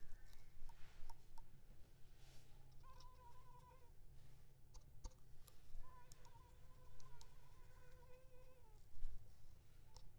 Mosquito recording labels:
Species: Culex pipiens complex; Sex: female; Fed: blood-fed; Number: one; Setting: cup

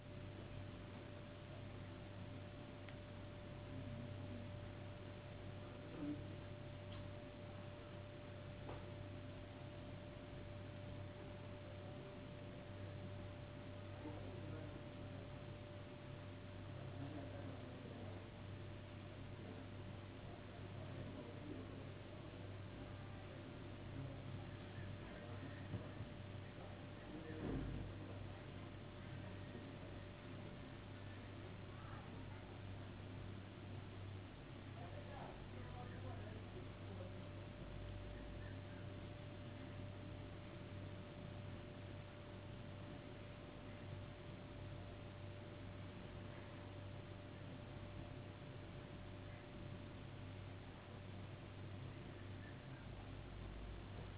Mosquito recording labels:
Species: no mosquito; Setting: insect culture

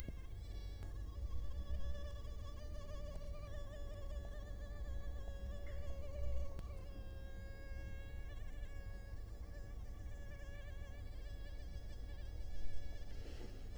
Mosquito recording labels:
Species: Culex quinquefasciatus; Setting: cup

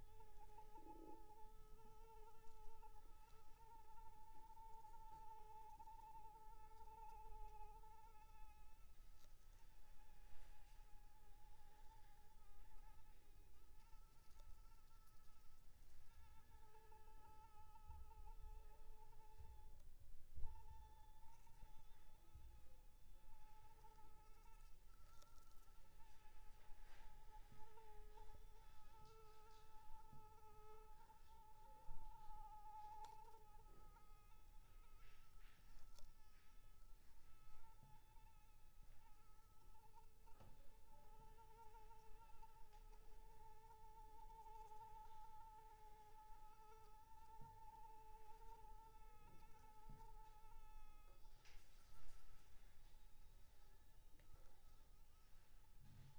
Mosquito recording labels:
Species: Anopheles arabiensis; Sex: female; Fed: unfed; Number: one; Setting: cup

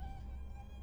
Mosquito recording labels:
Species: Anopheles gambiae; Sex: male; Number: one; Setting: cup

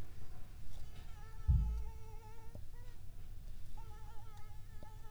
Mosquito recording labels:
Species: Anopheles arabiensis; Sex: female; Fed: unfed; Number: one; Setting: cup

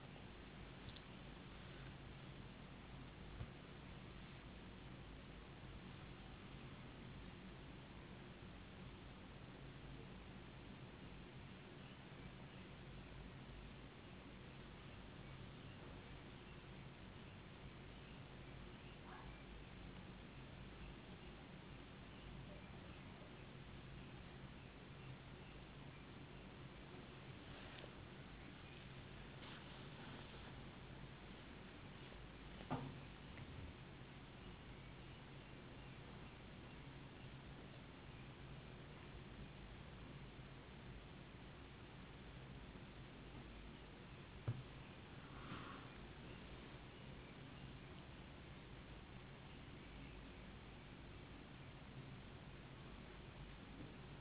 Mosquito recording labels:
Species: no mosquito; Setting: insect culture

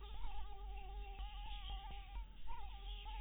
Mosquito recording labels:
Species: Anopheles dirus; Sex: female; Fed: blood-fed; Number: one; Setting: cup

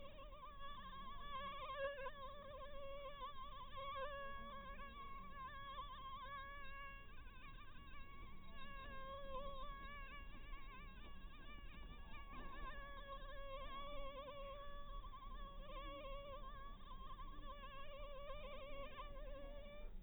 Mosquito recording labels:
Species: mosquito; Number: one; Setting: cup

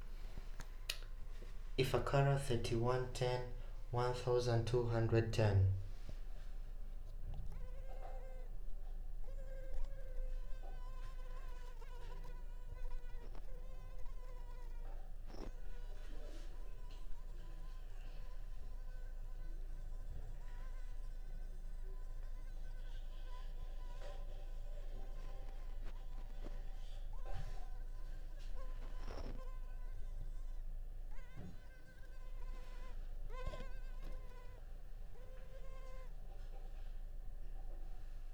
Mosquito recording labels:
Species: Culex pipiens complex; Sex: female; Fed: unfed; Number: one; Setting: cup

